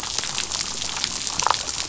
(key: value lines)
label: biophony, damselfish
recorder: SoundTrap 500